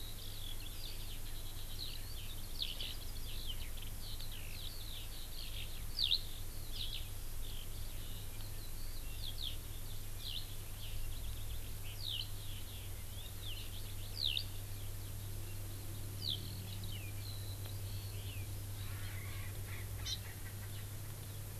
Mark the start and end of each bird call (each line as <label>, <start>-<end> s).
Eurasian Skylark (Alauda arvensis), 0.0-6.2 s
Eurasian Skylark (Alauda arvensis), 6.7-7.0 s
Eurasian Skylark (Alauda arvensis), 9.2-9.5 s
Eurasian Skylark (Alauda arvensis), 10.2-10.4 s